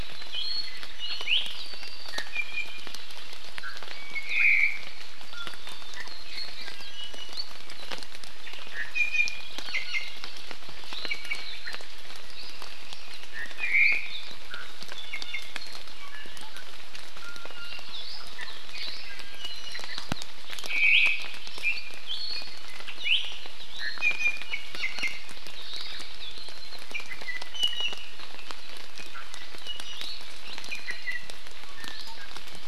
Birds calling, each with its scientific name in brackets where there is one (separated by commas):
Hawaii Amakihi (Chlorodrepanis virens), Iiwi (Drepanis coccinea), Omao (Myadestes obscurus)